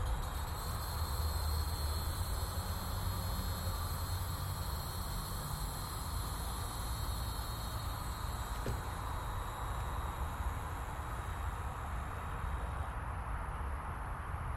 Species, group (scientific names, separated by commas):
Neocicada hieroglyphica, Cicadidae